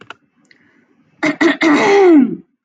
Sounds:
Throat clearing